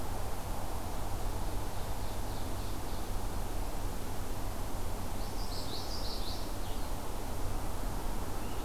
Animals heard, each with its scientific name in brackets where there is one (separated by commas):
Common Yellowthroat (Geothlypis trichas), Blue-headed Vireo (Vireo solitarius), Ovenbird (Seiurus aurocapilla)